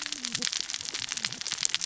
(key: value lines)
label: biophony, cascading saw
recorder: SoundTrap 600 or HydroMoth